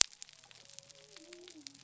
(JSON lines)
{"label": "biophony", "recorder": "SoundTrap 300"}